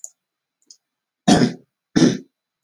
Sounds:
Throat clearing